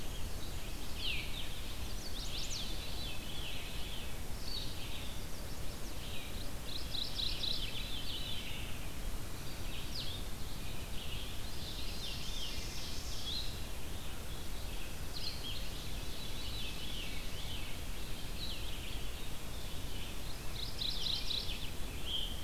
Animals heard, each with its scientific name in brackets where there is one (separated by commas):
Ovenbird (Seiurus aurocapilla), Veery (Catharus fuscescens), Blue-headed Vireo (Vireo solitarius), Chestnut-sided Warbler (Setophaga pensylvanica), Red-eyed Vireo (Vireo olivaceus), Mourning Warbler (Geothlypis philadelphia)